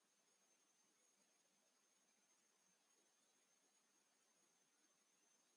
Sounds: Sigh